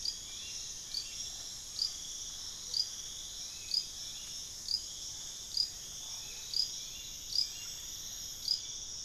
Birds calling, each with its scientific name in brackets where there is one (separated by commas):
Rufous-fronted Antthrush (Formicarius rufifrons), Hauxwell's Thrush (Turdus hauxwelli), Amazonian Motmot (Momotus momota)